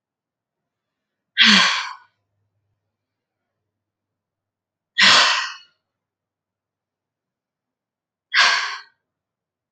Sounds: Sigh